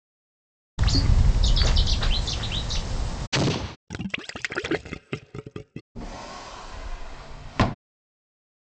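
First a bird can be heard. Then an explosion is heard. Afterwards, there is gurgling. Finally, a wooden drawer closes.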